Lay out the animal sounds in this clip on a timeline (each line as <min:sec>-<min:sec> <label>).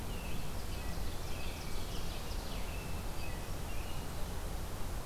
0:00.0-0:04.1 American Robin (Turdus migratorius)
0:00.3-0:02.6 Ovenbird (Seiurus aurocapilla)